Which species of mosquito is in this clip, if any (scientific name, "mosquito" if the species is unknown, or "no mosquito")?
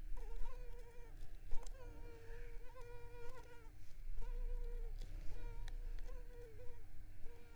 Culex pipiens complex